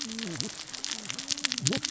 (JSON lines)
{"label": "biophony, cascading saw", "recorder": "SoundTrap 600 or HydroMoth"}